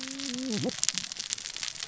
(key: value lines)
label: biophony, cascading saw
recorder: SoundTrap 600 or HydroMoth